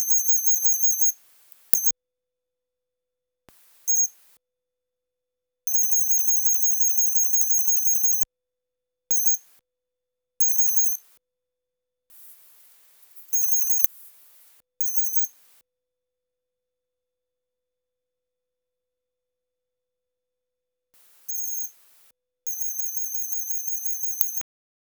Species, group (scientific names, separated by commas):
Gryllodinus kerkennensis, Orthoptera